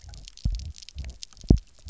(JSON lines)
{"label": "biophony, double pulse", "recorder": "SoundTrap 300"}